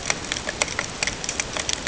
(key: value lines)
label: ambient
recorder: HydroMoth